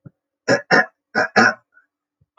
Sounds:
Throat clearing